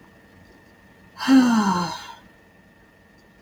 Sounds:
Sigh